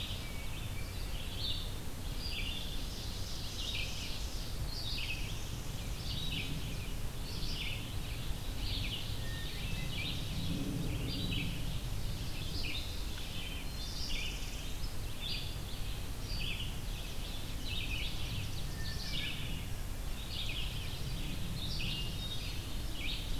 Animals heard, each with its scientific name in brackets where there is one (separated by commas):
Red-eyed Vireo (Vireo olivaceus), Northern Parula (Setophaga americana), Ovenbird (Seiurus aurocapilla), Hermit Thrush (Catharus guttatus), Chestnut-sided Warbler (Setophaga pensylvanica)